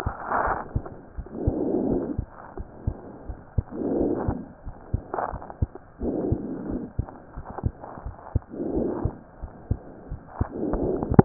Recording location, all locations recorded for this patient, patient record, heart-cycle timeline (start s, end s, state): pulmonary valve (PV)
aortic valve (AV)+pulmonary valve (PV)+tricuspid valve (TV)+mitral valve (MV)
#Age: Child
#Sex: Male
#Height: 98.0 cm
#Weight: 15.1 kg
#Pregnancy status: False
#Murmur: Absent
#Murmur locations: nan
#Most audible location: nan
#Systolic murmur timing: nan
#Systolic murmur shape: nan
#Systolic murmur grading: nan
#Systolic murmur pitch: nan
#Systolic murmur quality: nan
#Diastolic murmur timing: nan
#Diastolic murmur shape: nan
#Diastolic murmur grading: nan
#Diastolic murmur pitch: nan
#Diastolic murmur quality: nan
#Outcome: Abnormal
#Campaign: 2015 screening campaign
0.00	4.62	unannotated
4.62	4.75	S1
4.75	4.91	systole
4.91	5.01	S2
5.01	5.30	diastole
5.30	5.40	S1
5.40	5.59	systole
5.59	5.69	S2
5.69	5.99	diastole
5.99	6.09	S1
6.09	6.28	systole
6.28	6.38	S2
6.38	6.67	diastole
6.67	6.81	S1
6.81	6.95	systole
6.95	7.07	S2
7.07	7.33	diastole
7.33	7.44	S1
7.44	7.62	systole
7.62	7.72	S2
7.72	8.03	diastole
8.03	8.12	S1
8.12	8.31	systole
8.31	8.42	S2
8.42	8.73	diastole
8.73	8.83	S1
8.83	9.01	systole
9.01	9.13	S2
9.13	9.40	diastole
9.40	9.50	S1
9.50	9.66	systole
9.66	9.80	S2
9.80	10.08	diastole
10.08	10.18	S1
10.18	11.25	unannotated